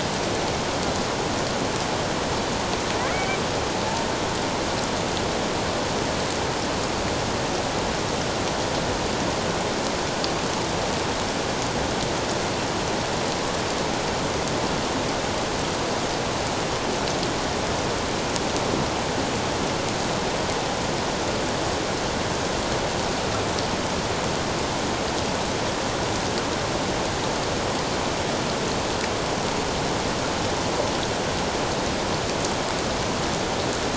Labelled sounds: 3.1	3.4	killer whale, Bigg's (transient), call T01, 2.1 to 2.4 kHz

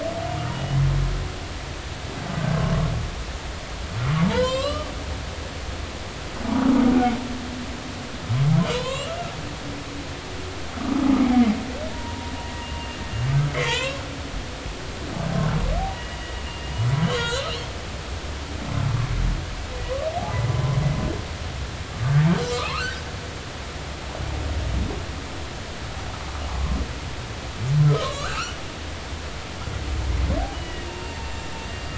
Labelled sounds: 0.5	0.8	humpback whale, 2.8 to 3.1 kHz
4.3	4.9	humpback whale, 0.83 to 7.9 kHz
8.7	9.1	humpback whale, 0.93 to 4.1 kHz
11.9	12.3	humpback whale, 0.90 to 0.99 kHz
12.6	14.0	humpback whale, 0.86 to 4.4 kHz
15.9	16.2	humpback whale, 1.9 to 3.0 kHz
16.5	17.5	humpback whale, 1.3 to 4.2 kHz
22.4	23.0	humpback whale, 0.99 to 4.0 kHz
28.0	28.6	humpback whale, 1.0 to 4.2 kHz
30.5	31.9	humpback whale, 2.7 to 3.0 kHz

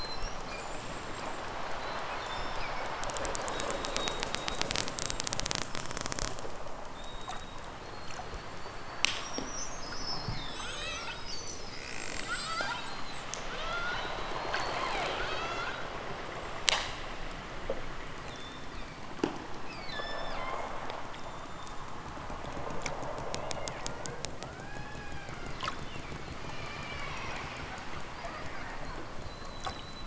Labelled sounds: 2.1	2.9	killer whale, southern Alaska resident, 1.7 to 8.0 kHz
9.6	11.2	killer whale, southern Alaska resident, 0.32 to 6.5 kHz
12.2	12.8	killer whale, southern Alaska resident, 0.32 to 7.6 kHz
13.5	14.1	killer whale, southern Alaska resident, 0.41 to 5.4 kHz
15.2	15.8	killer whale, southern Alaska resident, 0.96 to 8.0 kHz
18.0	19.1	killer whale, southern Alaska resident, 2.1 to 7.2 kHz
19.5	20.7	killer whale, southern Alaska resident, 1.3 to 8.0 kHz
25.7	26.3	killer whale, southern Alaska resident, 2.0 to 5.8 kHz

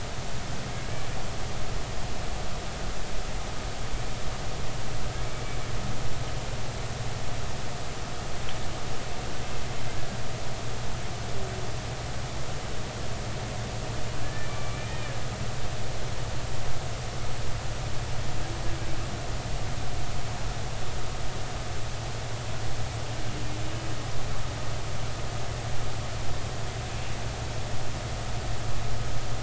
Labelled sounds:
14.2	14.9	humpback whale, 1.7 to 2.4 kHz
15.5	15.8	humpback whale, 1.1 to 1.2 kHz

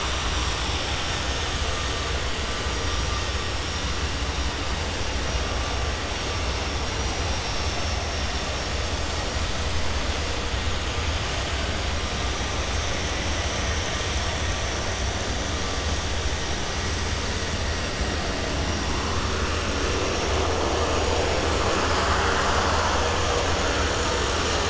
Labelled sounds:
6.9	8.0	vessel noise, 4.8 to 6.7 kHz

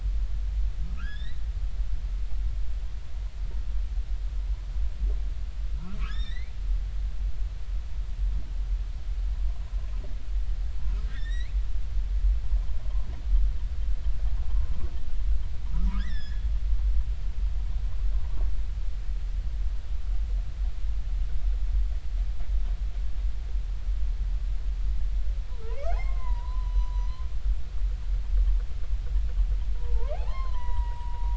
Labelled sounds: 1.0	1.4	humpback whale, 1.2 to 5.6 kHz
5.8	6.5	humpback whale, 0.90 to 5.6 kHz
11.0	11.5	humpback whale, 1.5 to 4.2 kHz
16.0	16.5	humpback whale, 1.5 to 6.0 kHz
25.6	27.1	humpback whale, 0.80 to 6.0 kHz
29.8	31.3	humpback whale, 0.80 to 4.3 kHz

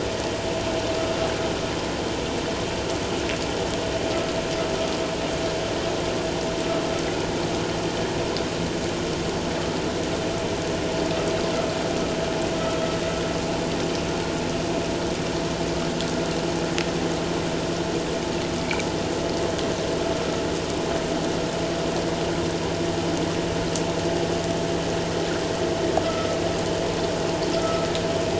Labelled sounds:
27.5	27.9	vessel noise, 1.2 to 1.4 kHz

